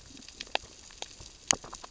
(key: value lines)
label: biophony, grazing
recorder: SoundTrap 600 or HydroMoth